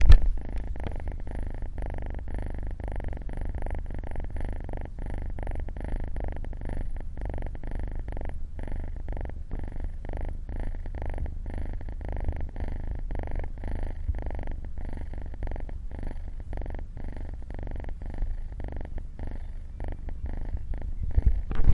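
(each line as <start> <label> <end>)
0.0 A kitten purrs softly and rhythmically indoors. 21.7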